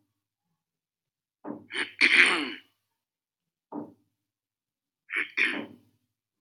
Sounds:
Throat clearing